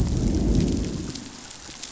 {"label": "biophony, growl", "recorder": "SoundTrap 500"}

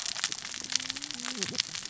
{"label": "biophony, cascading saw", "recorder": "SoundTrap 600 or HydroMoth"}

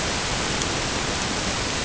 {"label": "ambient", "recorder": "HydroMoth"}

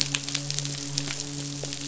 {"label": "biophony, midshipman", "recorder": "SoundTrap 500"}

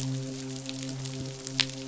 {"label": "biophony, midshipman", "recorder": "SoundTrap 500"}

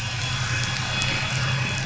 {"label": "anthrophony, boat engine", "recorder": "SoundTrap 500"}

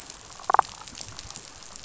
{"label": "biophony, damselfish", "recorder": "SoundTrap 500"}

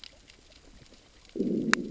{"label": "biophony, growl", "recorder": "SoundTrap 600 or HydroMoth"}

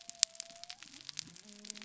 {"label": "biophony", "recorder": "SoundTrap 300"}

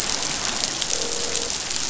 {"label": "biophony, croak", "recorder": "SoundTrap 500"}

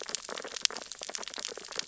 {"label": "biophony, sea urchins (Echinidae)", "recorder": "SoundTrap 600 or HydroMoth"}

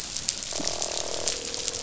{"label": "biophony, croak", "recorder": "SoundTrap 500"}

